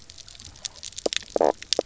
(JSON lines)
{"label": "biophony, knock croak", "recorder": "SoundTrap 300"}